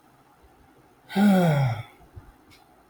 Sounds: Sigh